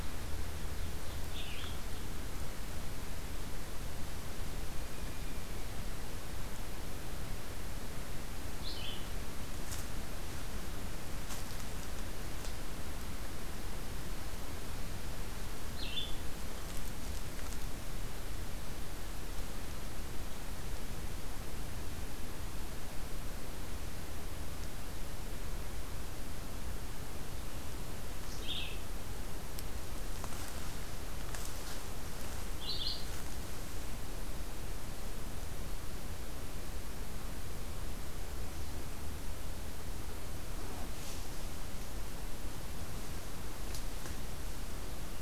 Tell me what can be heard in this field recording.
Red-eyed Vireo